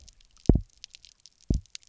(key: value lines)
label: biophony, double pulse
recorder: SoundTrap 300